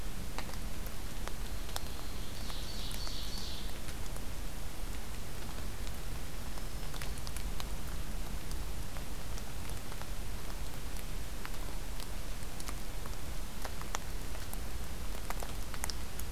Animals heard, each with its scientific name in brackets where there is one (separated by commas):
Black-throated Green Warbler (Setophaga virens), Ovenbird (Seiurus aurocapilla)